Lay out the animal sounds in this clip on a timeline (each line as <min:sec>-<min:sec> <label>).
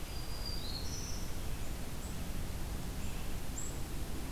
0:00.0-0:01.6 Black-throated Green Warbler (Setophaga virens)
0:00.0-0:04.3 Black-capped Chickadee (Poecile atricapillus)